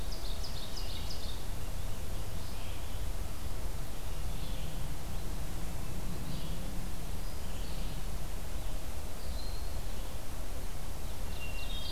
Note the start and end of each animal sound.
[0.00, 1.55] Ovenbird (Seiurus aurocapilla)
[0.00, 11.91] Red-eyed Vireo (Vireo olivaceus)
[10.83, 11.91] Hermit Thrush (Catharus guttatus)
[11.23, 11.91] Ovenbird (Seiurus aurocapilla)

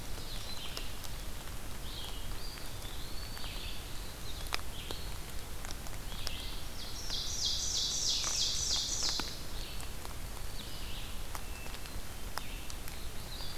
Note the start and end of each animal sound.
[0.00, 1.41] Ovenbird (Seiurus aurocapilla)
[0.00, 13.57] Red-eyed Vireo (Vireo olivaceus)
[2.22, 3.78] Eastern Wood-Pewee (Contopus virens)
[6.71, 9.45] Ovenbird (Seiurus aurocapilla)
[11.27, 12.31] Hermit Thrush (Catharus guttatus)

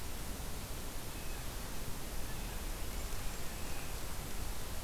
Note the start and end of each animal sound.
[0.99, 1.62] Blue Jay (Cyanocitta cristata)
[2.55, 4.58] Golden-crowned Kinglet (Regulus satrapa)
[3.24, 3.97] Blue Jay (Cyanocitta cristata)

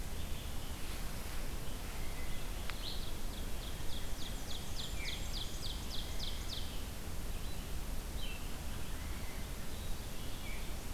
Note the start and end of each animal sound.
[0.00, 10.94] Red-eyed Vireo (Vireo olivaceus)
[2.89, 6.69] Ovenbird (Seiurus aurocapilla)
[3.79, 5.62] Black-and-white Warbler (Mniotilta varia)
[4.55, 5.76] Blackburnian Warbler (Setophaga fusca)

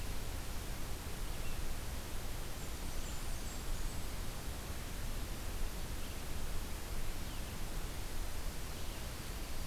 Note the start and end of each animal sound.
[2.41, 4.15] Blackburnian Warbler (Setophaga fusca)

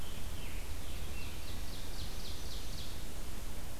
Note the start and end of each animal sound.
[0.00, 1.64] Scarlet Tanager (Piranga olivacea)
[0.84, 3.26] Ovenbird (Seiurus aurocapilla)

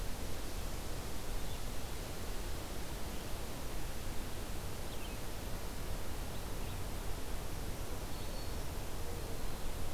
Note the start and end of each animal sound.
[0.00, 9.93] Red-eyed Vireo (Vireo olivaceus)
[7.44, 8.60] Black-throated Green Warbler (Setophaga virens)
[8.87, 9.65] Black-throated Green Warbler (Setophaga virens)

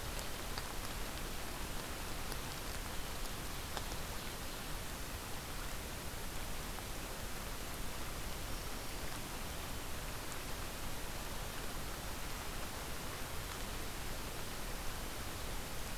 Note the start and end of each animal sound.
[3.05, 4.76] Ovenbird (Seiurus aurocapilla)
[8.16, 9.27] Black-throated Green Warbler (Setophaga virens)

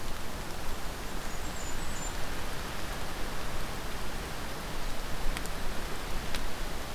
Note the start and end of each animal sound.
[0.42, 2.16] Blackburnian Warbler (Setophaga fusca)

